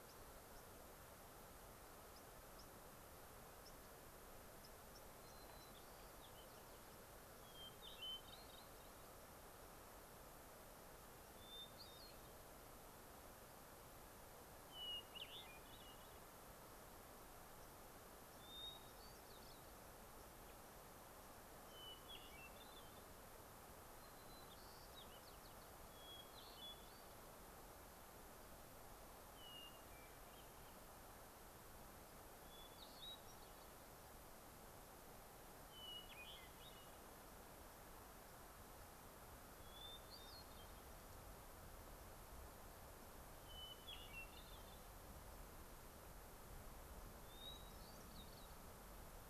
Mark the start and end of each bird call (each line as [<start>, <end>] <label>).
[0.00, 0.20] White-crowned Sparrow (Zonotrichia leucophrys)
[0.50, 0.60] White-crowned Sparrow (Zonotrichia leucophrys)
[2.10, 2.20] White-crowned Sparrow (Zonotrichia leucophrys)
[2.60, 2.70] White-crowned Sparrow (Zonotrichia leucophrys)
[3.60, 3.70] White-crowned Sparrow (Zonotrichia leucophrys)
[4.60, 7.00] White-crowned Sparrow (Zonotrichia leucophrys)
[7.40, 9.00] Hermit Thrush (Catharus guttatus)
[11.30, 12.50] Hermit Thrush (Catharus guttatus)
[14.60, 16.20] Hermit Thrush (Catharus guttatus)
[17.60, 17.70] White-crowned Sparrow (Zonotrichia leucophrys)
[18.40, 19.80] Hermit Thrush (Catharus guttatus)
[19.10, 19.20] White-crowned Sparrow (Zonotrichia leucophrys)
[20.20, 20.30] White-crowned Sparrow (Zonotrichia leucophrys)
[21.60, 23.00] Hermit Thrush (Catharus guttatus)
[21.70, 21.80] White-crowned Sparrow (Zonotrichia leucophrys)
[23.90, 25.80] White-crowned Sparrow (Zonotrichia leucophrys)
[25.90, 27.20] Hermit Thrush (Catharus guttatus)
[29.30, 30.80] Hermit Thrush (Catharus guttatus)
[32.40, 33.90] Hermit Thrush (Catharus guttatus)
[35.70, 37.10] Hermit Thrush (Catharus guttatus)
[39.50, 41.00] Hermit Thrush (Catharus guttatus)
[43.40, 44.90] Hermit Thrush (Catharus guttatus)
[47.10, 48.60] Hermit Thrush (Catharus guttatus)